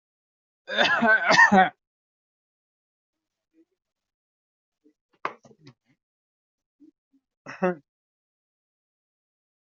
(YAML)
expert_labels:
- quality: good
  cough_type: dry
  dyspnea: false
  wheezing: false
  stridor: false
  choking: false
  congestion: false
  nothing: true
  diagnosis: healthy cough
  severity: pseudocough/healthy cough
gender: female
respiratory_condition: true
fever_muscle_pain: true
status: COVID-19